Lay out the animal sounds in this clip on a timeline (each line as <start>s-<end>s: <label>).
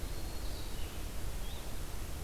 0.0s-0.8s: Eastern Wood-Pewee (Contopus virens)
0.0s-2.2s: Blue-headed Vireo (Vireo solitarius)